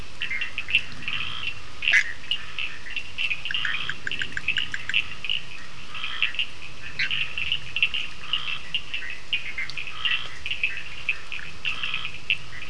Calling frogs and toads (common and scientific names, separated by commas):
Cochran's lime tree frog (Sphaenorhynchus surdus), Scinax perereca, Bischoff's tree frog (Boana bischoffi)